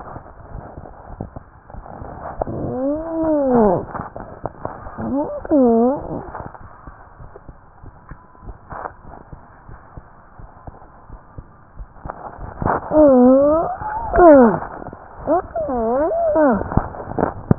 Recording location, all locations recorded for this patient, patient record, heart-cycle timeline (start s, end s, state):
tricuspid valve (TV)
pulmonary valve (PV)+tricuspid valve (TV)+mitral valve (MV)
#Age: Child
#Sex: Female
#Height: 109.0 cm
#Weight: 22.5 kg
#Pregnancy status: False
#Murmur: Unknown
#Murmur locations: nan
#Most audible location: nan
#Systolic murmur timing: nan
#Systolic murmur shape: nan
#Systolic murmur grading: nan
#Systolic murmur pitch: nan
#Systolic murmur quality: nan
#Diastolic murmur timing: nan
#Diastolic murmur shape: nan
#Diastolic murmur grading: nan
#Diastolic murmur pitch: nan
#Diastolic murmur quality: nan
#Outcome: Abnormal
#Campaign: 2015 screening campaign
0.00	7.18	unannotated
7.18	7.32	S1
7.32	7.44	systole
7.44	7.56	S2
7.56	7.80	diastole
7.80	7.91	S1
7.91	8.06	systole
8.06	8.15	S2
8.15	8.42	diastole
8.42	8.56	S1
8.56	8.68	systole
8.68	8.80	S2
8.80	9.04	diastole
9.04	9.17	S1
9.17	9.30	systole
9.30	9.38	S2
9.38	9.67	diastole
9.67	9.82	S1
9.82	9.94	systole
9.94	10.04	S2
10.04	10.36	diastole
10.36	10.49	S1
10.49	10.64	systole
10.64	10.72	S2
10.72	11.07	diastole
11.07	11.19	S1
11.19	11.34	systole
11.34	11.45	S2
11.45	11.75	diastole
11.75	11.88	S1
11.88	17.58	unannotated